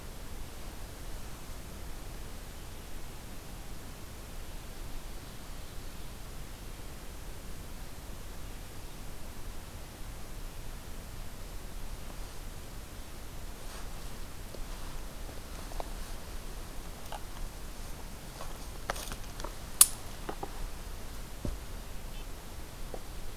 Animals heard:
forest ambience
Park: Hubbard Brook Experimental Forest